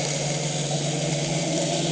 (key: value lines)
label: anthrophony, boat engine
recorder: HydroMoth